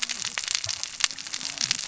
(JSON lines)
{"label": "biophony, cascading saw", "recorder": "SoundTrap 600 or HydroMoth"}